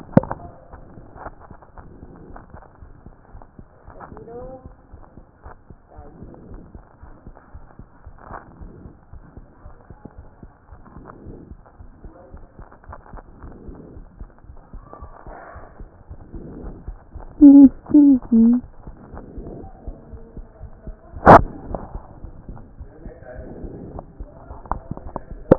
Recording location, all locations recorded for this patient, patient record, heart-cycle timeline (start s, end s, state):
aortic valve (AV)
aortic valve (AV)+pulmonary valve (PV)+tricuspid valve (TV)+mitral valve (MV)
#Age: Child
#Sex: Male
#Height: 124.0 cm
#Weight: 25.8 kg
#Pregnancy status: False
#Murmur: Present
#Murmur locations: mitral valve (MV)+tricuspid valve (TV)
#Most audible location: tricuspid valve (TV)
#Systolic murmur timing: Early-systolic
#Systolic murmur shape: Plateau
#Systolic murmur grading: I/VI
#Systolic murmur pitch: Low
#Systolic murmur quality: Harsh
#Diastolic murmur timing: nan
#Diastolic murmur shape: nan
#Diastolic murmur grading: nan
#Diastolic murmur pitch: nan
#Diastolic murmur quality: nan
#Outcome: Normal
#Campaign: 2014 screening campaign
0.00	4.83	unannotated
4.83	4.92	diastole
4.92	5.02	S1
5.02	5.16	systole
5.16	5.26	S2
5.26	5.46	diastole
5.46	5.54	S1
5.54	5.70	systole
5.70	5.78	S2
5.78	5.98	diastole
5.98	6.08	S1
6.08	6.20	systole
6.20	6.30	S2
6.30	6.50	diastole
6.50	6.62	S1
6.62	6.74	systole
6.74	6.84	S2
6.84	7.04	diastole
7.04	7.14	S1
7.14	7.26	systole
7.26	7.36	S2
7.36	7.54	diastole
7.54	7.64	S1
7.64	7.78	systole
7.78	7.88	S2
7.88	8.06	diastole
8.06	8.16	S1
8.16	8.30	systole
8.30	8.38	S2
8.38	8.60	diastole
8.60	8.72	S1
8.72	8.84	systole
8.84	8.94	S2
8.94	9.14	diastole
9.14	9.24	S1
9.24	9.36	systole
9.36	9.46	S2
9.46	9.64	diastole
9.64	9.74	S1
9.74	9.90	systole
9.90	9.98	S2
9.98	10.18	diastole
10.18	10.28	S1
10.28	10.42	systole
10.42	10.52	S2
10.52	10.74	diastole
10.74	25.58	unannotated